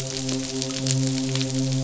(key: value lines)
label: biophony, midshipman
recorder: SoundTrap 500